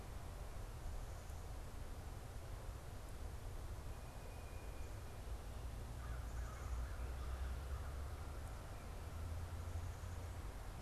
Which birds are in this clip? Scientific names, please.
Baeolophus bicolor, Poecile atricapillus